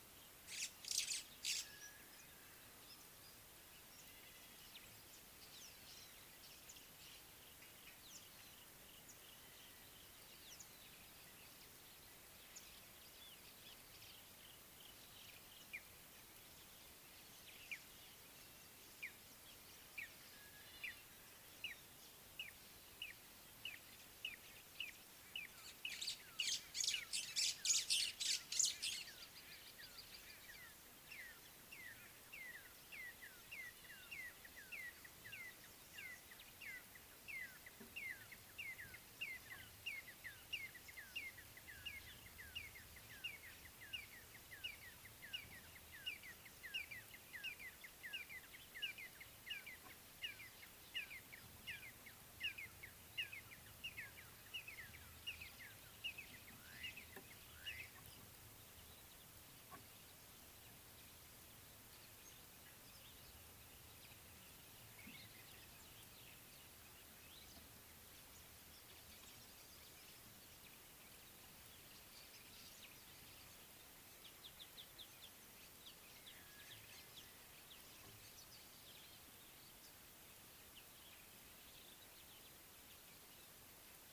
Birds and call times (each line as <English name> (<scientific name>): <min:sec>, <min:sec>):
White-browed Sparrow-Weaver (Plocepasser mahali): 0:01.1, 0:27.5
Red-and-yellow Barbet (Trachyphonus erythrocephalus): 0:24.4, 0:35.5, 0:41.2, 0:46.1, 0:51.1, 0:56.1
Hunter's Sunbird (Chalcomitra hunteri): 1:14.8